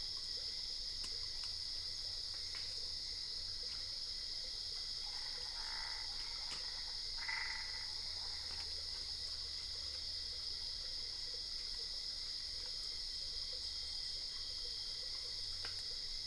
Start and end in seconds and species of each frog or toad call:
5.2	8.2	Boana albopunctata
Cerrado, 11:15pm

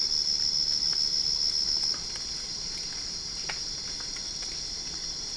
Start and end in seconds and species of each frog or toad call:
none
Cerrado, 1:00am

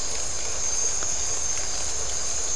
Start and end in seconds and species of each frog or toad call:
none
Atlantic Forest, 10:15pm

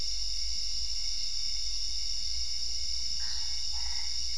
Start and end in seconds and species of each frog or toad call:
3.0	4.3	Boana albopunctata
Cerrado, 11:30pm

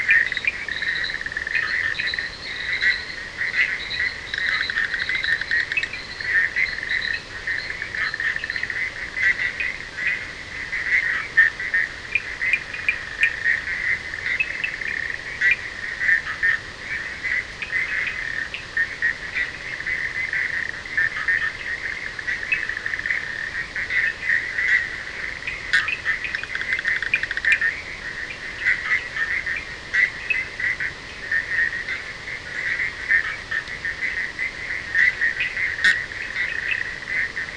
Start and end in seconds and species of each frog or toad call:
4.2	6.1	Boana bischoffi
12.0	15.0	Sphaenorhynchus surdus
26.2	27.7	Boana bischoffi
27.1	30.6	Sphaenorhynchus surdus
36.1	36.9	Sphaenorhynchus surdus
Atlantic Forest, 2:30am

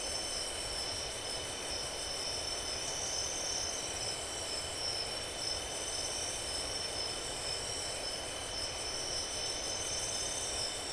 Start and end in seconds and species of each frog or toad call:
none
Atlantic Forest, 11:30pm

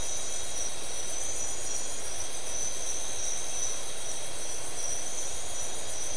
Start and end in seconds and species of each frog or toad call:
none
Atlantic Forest, 12:00am

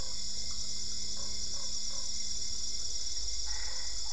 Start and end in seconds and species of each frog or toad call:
0.0	2.3	Boana lundii
3.4	4.1	Boana albopunctata
Cerrado, 10:30pm

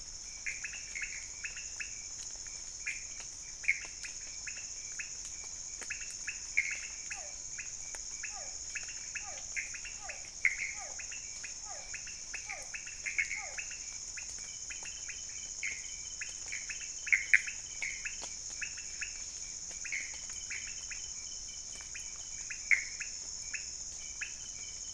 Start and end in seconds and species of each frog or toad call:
0.0	24.9	Leptodactylus podicipinus
0.0	24.9	Pithecopus azureus
7.0	13.7	Physalaemus cuvieri
Cerrado, 1:00am

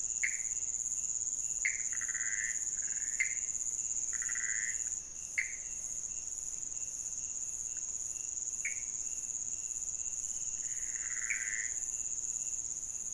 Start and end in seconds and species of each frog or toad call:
0.0	5.8	Pithecopus azureus
8.6	9.2	Pithecopus azureus
10.5	12.0	Pithecopus azureus
Cerrado, 4:00am

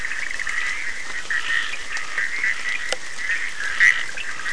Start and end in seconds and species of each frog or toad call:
0.0	4.5	Boana bischoffi
0.0	4.5	Scinax perereca
1.7	2.1	Sphaenorhynchus surdus
Atlantic Forest, 4:30am

